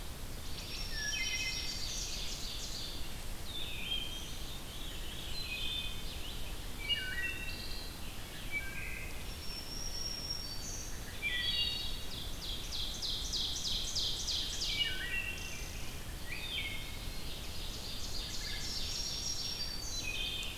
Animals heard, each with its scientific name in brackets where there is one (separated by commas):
Eastern Wood-Pewee (Contopus virens), Red-eyed Vireo (Vireo olivaceus), Wood Thrush (Hylocichla mustelina), Black-throated Green Warbler (Setophaga virens), Veery (Catharus fuscescens), Ovenbird (Seiurus aurocapilla)